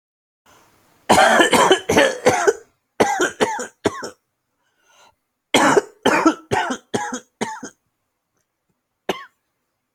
{"expert_labels": [{"quality": "ok", "cough_type": "dry", "dyspnea": false, "wheezing": false, "stridor": false, "choking": true, "congestion": false, "nothing": false, "diagnosis": "COVID-19", "severity": "severe"}], "age": 32, "gender": "male", "respiratory_condition": false, "fever_muscle_pain": true, "status": "symptomatic"}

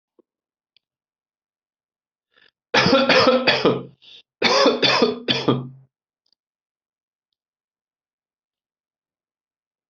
{"expert_labels": [{"quality": "good", "cough_type": "dry", "dyspnea": false, "wheezing": false, "stridor": false, "choking": false, "congestion": false, "nothing": true, "diagnosis": "upper respiratory tract infection", "severity": "mild"}], "age": 36, "gender": "male", "respiratory_condition": false, "fever_muscle_pain": true, "status": "COVID-19"}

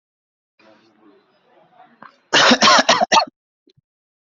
{"expert_labels": [{"quality": "good", "cough_type": "dry", "dyspnea": false, "wheezing": false, "stridor": false, "choking": false, "congestion": false, "nothing": true, "diagnosis": "upper respiratory tract infection", "severity": "mild"}], "age": 26, "gender": "male", "respiratory_condition": false, "fever_muscle_pain": false, "status": "healthy"}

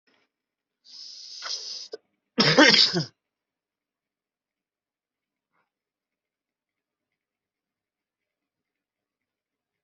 {"expert_labels": [{"quality": "ok", "cough_type": "dry", "dyspnea": false, "wheezing": false, "stridor": false, "choking": false, "congestion": false, "nothing": true, "diagnosis": "COVID-19", "severity": "mild"}], "age": 28, "gender": "male", "respiratory_condition": false, "fever_muscle_pain": true, "status": "healthy"}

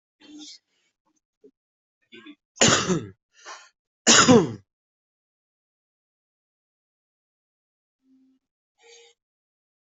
{"expert_labels": [{"quality": "ok", "cough_type": "unknown", "dyspnea": false, "wheezing": false, "stridor": false, "choking": false, "congestion": false, "nothing": true, "diagnosis": "healthy cough", "severity": "pseudocough/healthy cough"}], "age": 43, "gender": "male", "respiratory_condition": false, "fever_muscle_pain": false, "status": "COVID-19"}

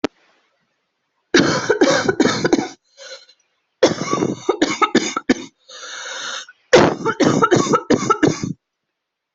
{"expert_labels": [{"quality": "good", "cough_type": "dry", "dyspnea": true, "wheezing": false, "stridor": false, "choking": false, "congestion": false, "nothing": false, "diagnosis": "upper respiratory tract infection", "severity": "severe"}], "age": 41, "gender": "female", "respiratory_condition": true, "fever_muscle_pain": false, "status": "symptomatic"}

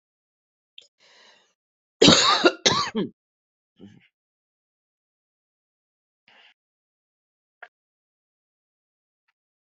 {"expert_labels": [{"quality": "good", "cough_type": "wet", "dyspnea": false, "wheezing": false, "stridor": false, "choking": false, "congestion": false, "nothing": true, "diagnosis": "lower respiratory tract infection", "severity": "mild"}], "age": 42, "gender": "female", "respiratory_condition": true, "fever_muscle_pain": false, "status": "symptomatic"}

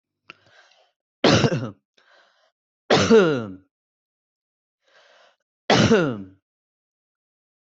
{"expert_labels": [{"quality": "good", "cough_type": "unknown", "dyspnea": false, "wheezing": false, "stridor": false, "choking": false, "congestion": false, "nothing": true, "diagnosis": "healthy cough", "severity": "pseudocough/healthy cough"}], "age": 26, "gender": "male", "respiratory_condition": true, "fever_muscle_pain": false, "status": "symptomatic"}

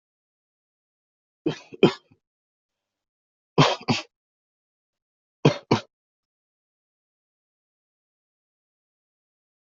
{"expert_labels": [{"quality": "ok", "cough_type": "unknown", "dyspnea": false, "wheezing": false, "stridor": false, "choking": false, "congestion": false, "nothing": true, "diagnosis": "healthy cough", "severity": "pseudocough/healthy cough"}]}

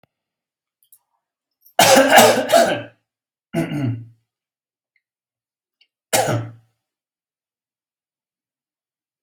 {"expert_labels": [{"quality": "ok", "cough_type": "unknown", "dyspnea": false, "wheezing": false, "stridor": false, "choking": false, "congestion": false, "nothing": true, "diagnosis": "healthy cough", "severity": "pseudocough/healthy cough"}], "age": 50, "gender": "male", "respiratory_condition": false, "fever_muscle_pain": false, "status": "healthy"}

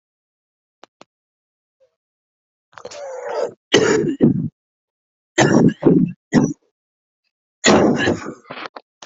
{"expert_labels": [{"quality": "ok", "cough_type": "wet", "dyspnea": false, "wheezing": false, "stridor": false, "choking": false, "congestion": false, "nothing": true, "diagnosis": "obstructive lung disease", "severity": "severe"}], "age": 24, "gender": "male", "respiratory_condition": false, "fever_muscle_pain": true, "status": "symptomatic"}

